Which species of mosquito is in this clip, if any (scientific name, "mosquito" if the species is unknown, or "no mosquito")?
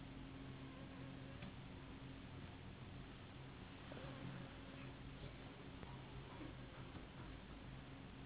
Anopheles gambiae s.s.